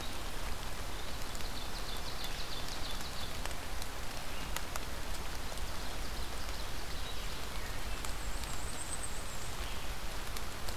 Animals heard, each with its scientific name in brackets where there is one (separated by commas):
Red-eyed Vireo (Vireo olivaceus), Ovenbird (Seiurus aurocapilla), Black-and-white Warbler (Mniotilta varia)